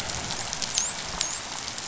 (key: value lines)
label: biophony, dolphin
recorder: SoundTrap 500